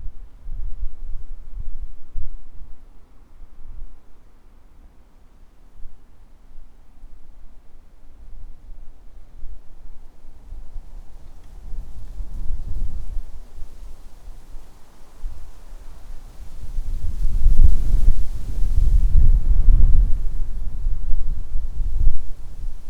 Is it quiet at the beginning?
yes